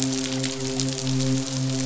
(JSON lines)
{"label": "biophony, midshipman", "recorder": "SoundTrap 500"}